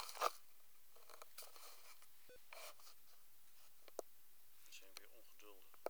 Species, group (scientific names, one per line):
Tessellana tessellata
Orthoptera